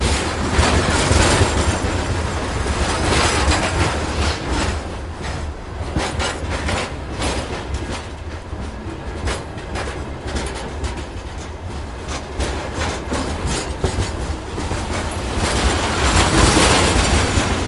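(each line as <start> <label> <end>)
0.0 A train wagon moves continuously on bumpy rails with a very loud, aggressive rattling sound. 4.4
4.4 A train wagon moves on the rail with a loud, rattling, and thumping sound. 15.2
15.2 A train wagon moves continuously on bumpy rails with a very loud, aggressive rattling sound. 17.7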